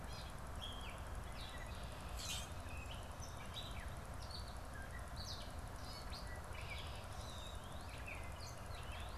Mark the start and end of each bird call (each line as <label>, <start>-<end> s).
Gray Catbird (Dumetella carolinensis), 0.0-9.2 s
Common Grackle (Quiscalus quiscula), 2.0-2.5 s